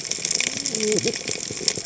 {"label": "biophony, cascading saw", "recorder": "HydroMoth"}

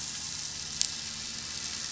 {"label": "anthrophony, boat engine", "recorder": "SoundTrap 500"}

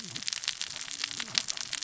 {"label": "biophony, cascading saw", "recorder": "SoundTrap 600 or HydroMoth"}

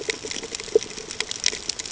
{"label": "ambient", "recorder": "HydroMoth"}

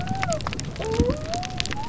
{"label": "biophony", "recorder": "SoundTrap 300"}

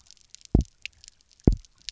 {"label": "biophony, double pulse", "recorder": "SoundTrap 300"}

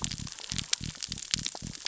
{"label": "biophony", "recorder": "SoundTrap 600 or HydroMoth"}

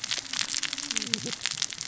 {"label": "biophony, cascading saw", "recorder": "SoundTrap 600 or HydroMoth"}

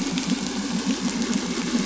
{"label": "anthrophony, boat engine", "recorder": "SoundTrap 500"}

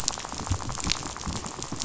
{"label": "biophony, rattle", "recorder": "SoundTrap 500"}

